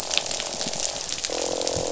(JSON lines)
{"label": "biophony, croak", "recorder": "SoundTrap 500"}